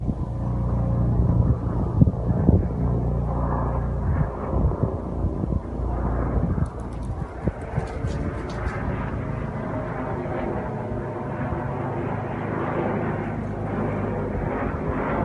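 A helicopter flies overhead, producing a deep pulsing rotor sound. 0:00.0 - 0:15.2

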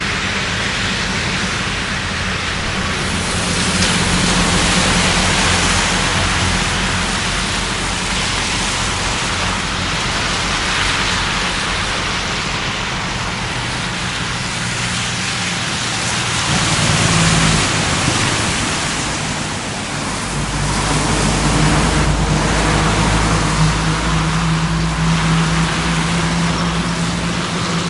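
Busy traffic noise from vehicles passing on a wet underground road. 0:00.0 - 0:27.9

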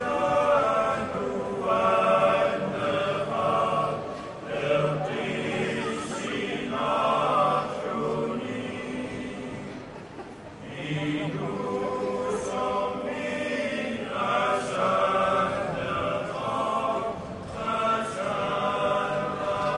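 A group of people singing loudly in a choir with light echo. 0:00.0 - 0:19.8
A young person laughs in the distance with decreasing volume and pitch. 0:05.8 - 0:07.9
A person is speaking quietly and muffled in the distance. 0:10.7 - 0:13.3

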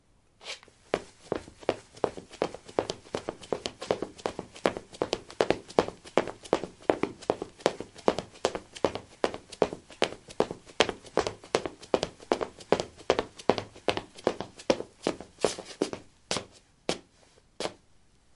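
One foot quickly swipes across the floor. 0:00.4 - 0:00.8
Steady footsteps tapping quickly and regularly on a wooden floor. 0:00.8 - 0:16.1
Three slow, steady footsteps. 0:16.0 - 0:18.4

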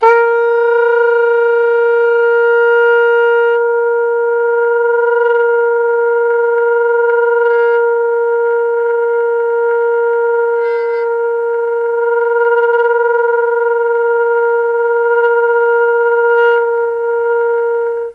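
A saxophone plays a single sustained tone with slight fluctuations in pitch and intensity. 0:00.0 - 0:18.1

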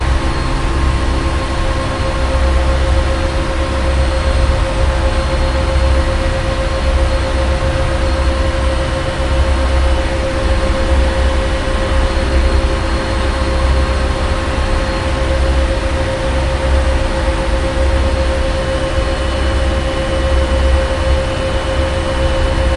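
A deep, resonant hum from the engine room of a ferry boat, with continuous vibration and mechanical sounds typical of a large ship in motion, creating a dense and immersive marine atmosphere. 0:00.0 - 0:22.7

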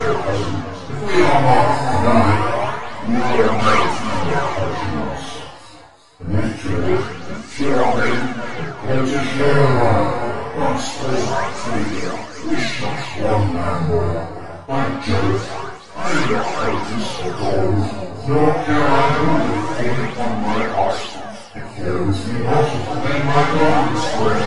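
A man is speaking loudly in a steady but distorted manner. 0:00.0 - 0:24.4

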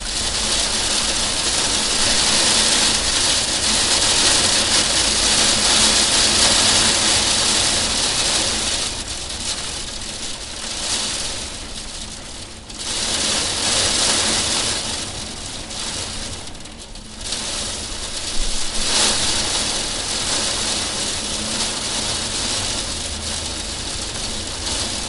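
Heavy raindrops fall on a window with varying frequency. 0:00.0 - 0:25.1

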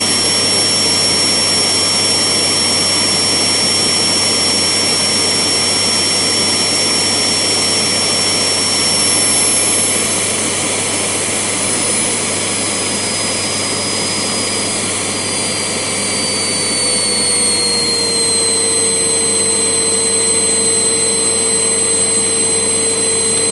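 A vacuum cleaner is making a loud noise. 0:00.1 - 0:23.5

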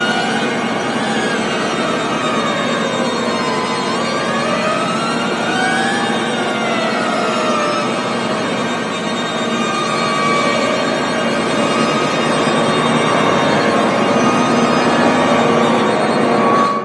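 Loud, rhythmic sound of string instruments playing repeating patterns that gradually increase in volume and then fade at the end. 0:00.0 - 0:16.8
An ambulance siren sounds in the distance. 0:02.5 - 0:09.2

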